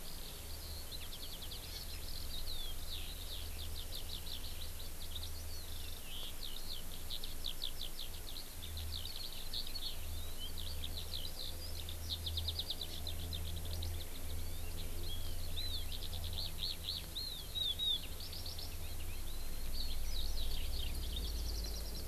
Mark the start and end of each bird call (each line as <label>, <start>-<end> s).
Eurasian Skylark (Alauda arvensis), 0.0-22.0 s
Hawaii Amakihi (Chlorodrepanis virens), 1.7-1.8 s
Hawaii Amakihi (Chlorodrepanis virens), 12.8-13.0 s